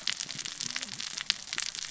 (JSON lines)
{"label": "biophony, cascading saw", "recorder": "SoundTrap 600 or HydroMoth"}